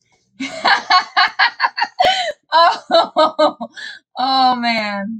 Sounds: Laughter